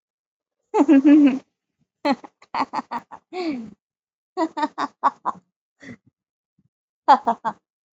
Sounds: Laughter